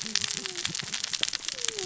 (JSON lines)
{"label": "biophony, cascading saw", "recorder": "SoundTrap 600 or HydroMoth"}